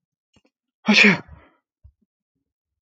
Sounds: Sneeze